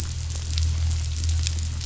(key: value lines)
label: anthrophony, boat engine
recorder: SoundTrap 500